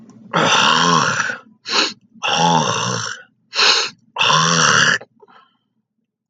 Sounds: Throat clearing